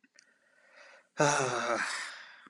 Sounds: Sigh